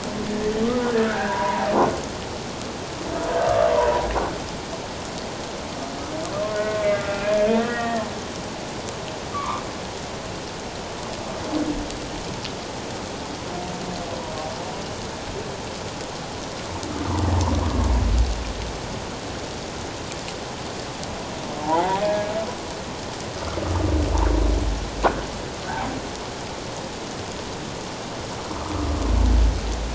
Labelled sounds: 1.0	1.7	humpback whale, 0.78 to 1.8 kHz
3.7	4.1	humpback whale, 0.88 to 1.1 kHz
6.5	7.4	humpback whale, 1.3 to 2.5 kHz
7.7	8.0	humpback whale, 1.7 to 2.0 kHz
9.3	9.6	humpback whale, 0.91 to 1.3 kHz
21.6	22.3	humpback whale, 0.78 to 1.7 kHz

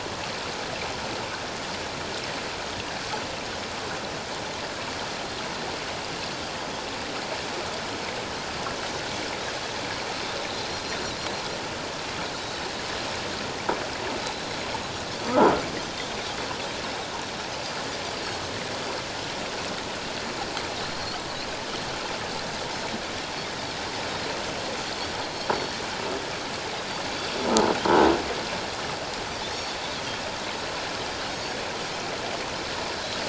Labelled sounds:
15.2	15.5	croaking sound likely from a nearby submerged object, 1.2 to 1.4 kHz
20.9	21.2	Pacific white-sided dolphin, 4.2 to 4.6 kHz
25.3	25.7	Pacific white-sided dolphin, 4.2 to 4.5 kHz
31.3	31.6	Pacific white-sided dolphin, 5.4 to 5.6 kHz

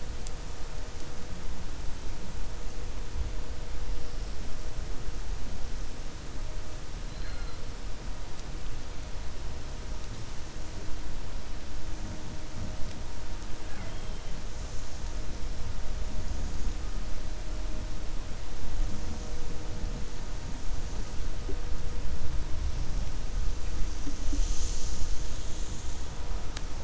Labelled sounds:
7.0	7.6	killer whale, 0.58 to 4.2 kHz

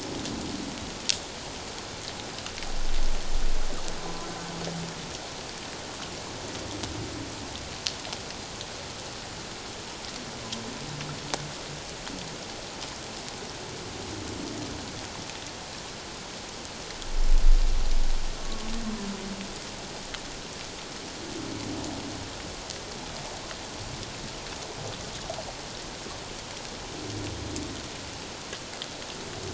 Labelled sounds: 18.4	18.7	humpback whale, 1.1 to 1.2 kHz

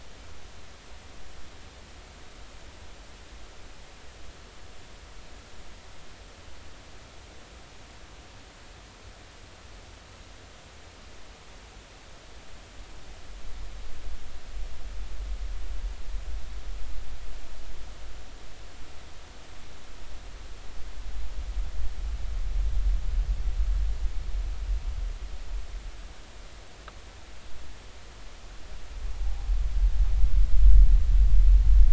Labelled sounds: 29.2	29.5	humpback whale, 0.80 to 0.99 kHz

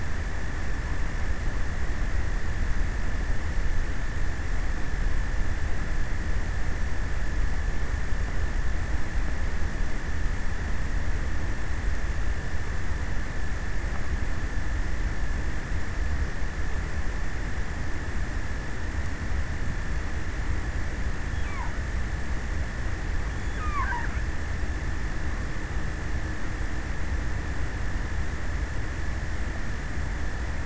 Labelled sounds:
20.8	21.9	killer whale, offshore, 0.55 to 5.8 kHz
23.2	24.5	killer whale, offshore, 0.24 to 5.7 kHz

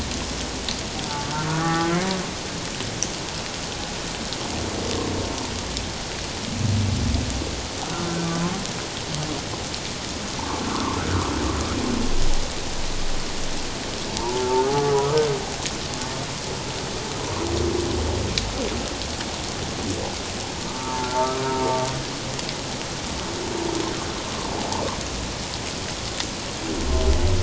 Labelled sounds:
1.5	1.9	humpback whale, 0.78 to 1.9 kHz
7.9	8.2	humpback whale, 1.3 to 1.5 kHz
10.7	11.0	humpback whale, 0.88 to 1.2 kHz
14.2	14.7	humpback whale, 0.81 to 1.1 kHz
20.7	21.1	humpback whale, 0.84 to 1.0 kHz

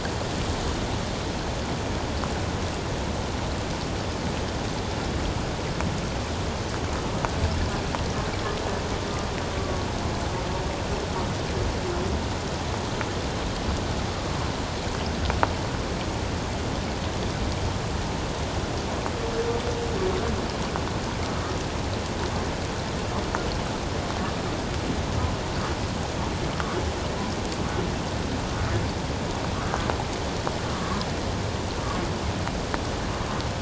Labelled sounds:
9.6	9.8	humpback whale, 1.1 to 1.2 kHz
29.6	29.9	humpback whale, 1.5 to 1.7 kHz
30.8	31.0	humpback whale, 1.0 to 1.2 kHz

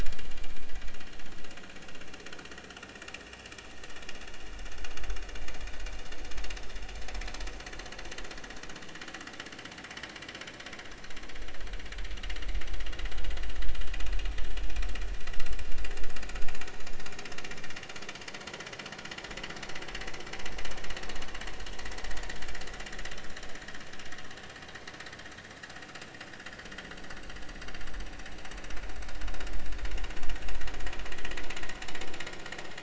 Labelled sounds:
15.4	15.7	vessel noise, 5.1 to 5.5 kHz

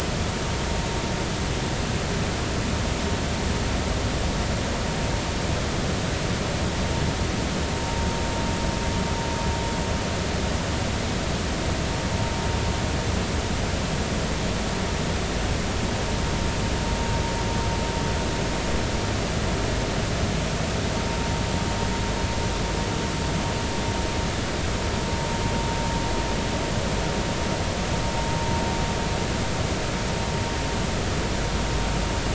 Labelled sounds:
7.8	8.1	vessel noise, 0.86 to 0.96 kHz

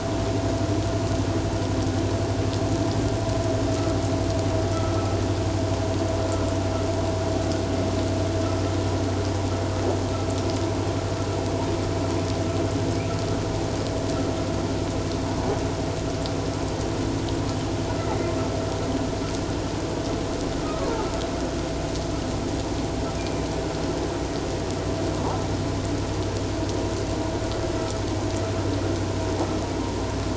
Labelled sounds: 18.0	18.3	humpback whale, 1.8 to 2.1 kHz
23.2	23.4	humpback whale, 2.3 to 2.5 kHz

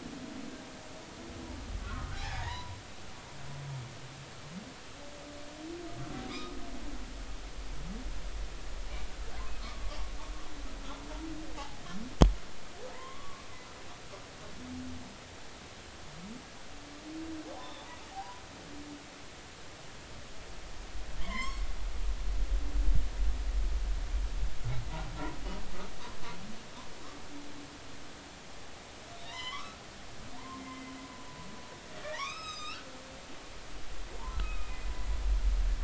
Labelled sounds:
1.8	2.8	humpback whale, 0.80 to 4.0 kHz
6.3	6.6	humpback whale, 1.2 to 1.3 kHz
9.6	10.0	humpback whale, 1.0 to 1.3 kHz
11.6	11.8	humpback whale, 0.80 to 0.93 kHz
12.9	13.5	humpback whale, 0.86 to 1.2 kHz
17.5	18.4	humpback whale, 0.80 to 3.7 kHz
21.2	21.6	humpback whale, 0.93 to 5.5 kHz
29.2	29.8	humpback whale, 0.90 to 7.3 kHz
30.4	30.9	humpback whale, 0.86 to 2.1 kHz
32.0	32.9	humpback whale, 0.86 to 7.8 kHz
34.3	34.8	humpback whale, 1.2 to 2.7 kHz

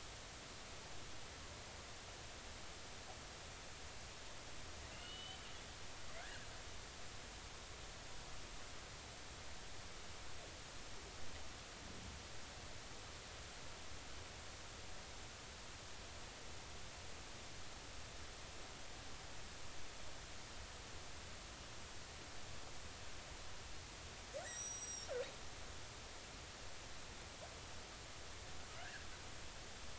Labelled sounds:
4.9	6.5	killer whale, northern resident, G clan, 1.4 to 3.8 kHz
24.4	25.2	killer whale, northern resident, G clan, 3.7 to 7.8 kHz
28.8	29.1	killer whale, northern resident, G clan, 1.4 to 1.9 kHz

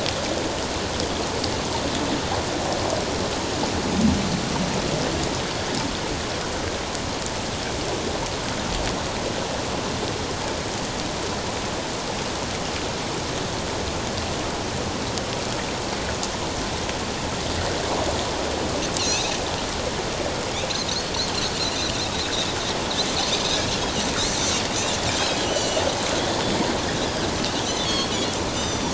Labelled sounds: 19.0	19.3	Pacific white-sided dolphin, 2.4 to 3.0 kHz
20.9	21.9	Pacific white-sided dolphin, 3.6 to 4.5 kHz
25.1	25.8	Pacific white-sided dolphin, 2.8 to 6.1 kHz
27.9	28.9	Pacific white-sided dolphin, 3.1 to 7.5 kHz

